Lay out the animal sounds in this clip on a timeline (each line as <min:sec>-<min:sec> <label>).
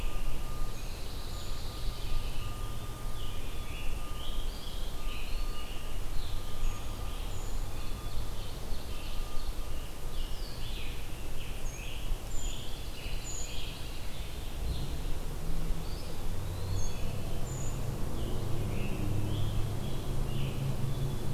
0:00.0-0:01.7 Brown Creeper (Certhia americana)
0:00.4-0:02.7 Pine Warbler (Setophaga pinus)
0:03.0-0:06.2 Scarlet Tanager (Piranga olivacea)
0:04.2-0:05.8 Eastern Wood-Pewee (Contopus virens)
0:06.4-0:07.7 Brown Creeper (Certhia americana)
0:07.3-0:09.9 Ovenbird (Seiurus aurocapilla)
0:08.8-0:14.6 Scarlet Tanager (Piranga olivacea)
0:11.5-0:13.6 Brown Creeper (Certhia americana)
0:12.6-0:13.8 Pine Warbler (Setophaga pinus)
0:15.7-0:17.2 Eastern Wood-Pewee (Contopus virens)
0:16.5-0:18.0 Brown Creeper (Certhia americana)
0:18.1-0:20.8 Scarlet Tanager (Piranga olivacea)